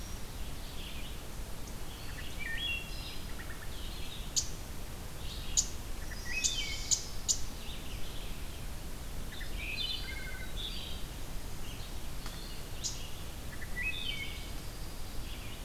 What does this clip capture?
Red-eyed Vireo, Wood Thrush, unidentified call, Dark-eyed Junco